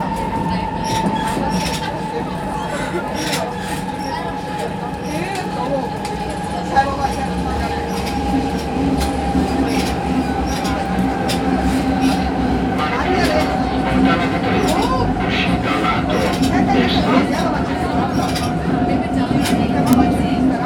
Is this an amusement park ride?
no